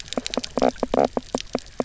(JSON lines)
{"label": "biophony, knock croak", "recorder": "SoundTrap 300"}